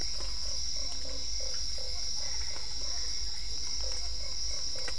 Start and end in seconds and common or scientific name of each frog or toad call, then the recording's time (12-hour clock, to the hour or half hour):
0.0	4.9	Usina tree frog
0.0	4.9	Physalaemus cuvieri
2.2	3.5	Boana albopunctata
7pm